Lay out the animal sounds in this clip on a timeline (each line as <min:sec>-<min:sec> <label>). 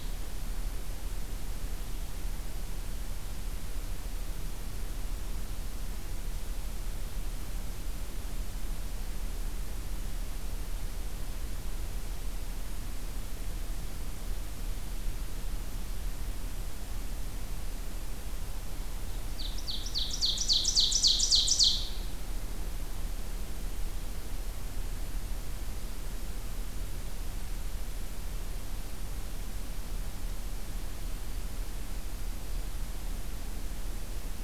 0:19.2-0:22.1 Ovenbird (Seiurus aurocapilla)